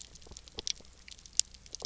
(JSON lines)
{"label": "biophony, knock croak", "recorder": "SoundTrap 300"}